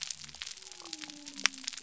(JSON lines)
{"label": "biophony", "recorder": "SoundTrap 300"}